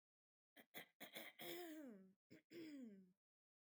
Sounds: Throat clearing